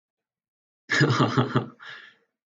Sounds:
Laughter